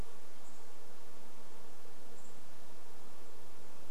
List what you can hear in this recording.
unidentified bird chip note